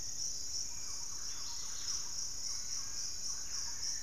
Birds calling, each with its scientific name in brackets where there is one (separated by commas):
Buff-throated Woodcreeper (Xiphorhynchus guttatus), Hauxwell's Thrush (Turdus hauxwelli), Thrush-like Wren (Campylorhynchus turdinus), Dusky-capped Greenlet (Pachysylvia hypoxantha)